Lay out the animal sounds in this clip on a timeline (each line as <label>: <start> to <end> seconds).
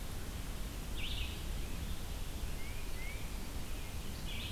Red-eyed Vireo (Vireo olivaceus): 0.0 to 4.5 seconds
Tufted Titmouse (Baeolophus bicolor): 2.3 to 3.3 seconds